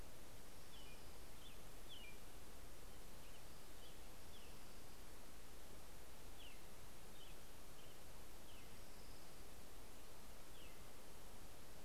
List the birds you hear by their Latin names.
Leiothlypis celata, Turdus migratorius